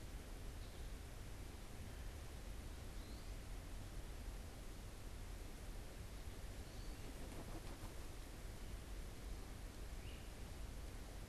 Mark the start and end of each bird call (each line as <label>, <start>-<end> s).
American Goldfinch (Spinus tristis), 2.7-3.6 s